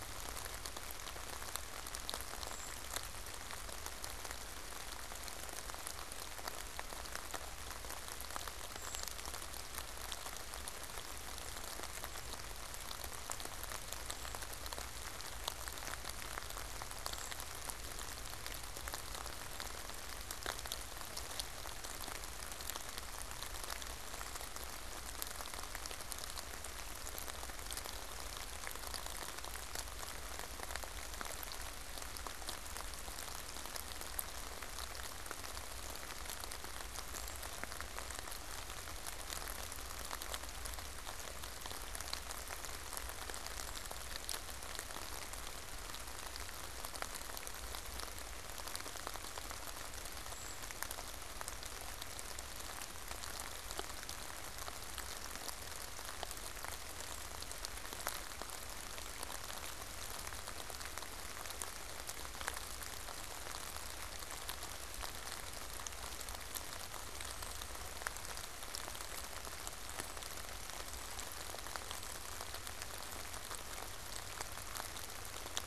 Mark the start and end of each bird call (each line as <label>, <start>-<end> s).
Brown Creeper (Certhia americana), 0.0-3.0 s
Brown Creeper (Certhia americana), 8.6-17.7 s
Brown Creeper (Certhia americana), 24.0-24.5 s
Brown Creeper (Certhia americana), 37.1-37.6 s
Brown Creeper (Certhia americana), 50.2-51.0 s
unidentified bird, 66.7-72.5 s